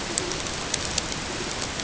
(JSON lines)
{"label": "ambient", "recorder": "HydroMoth"}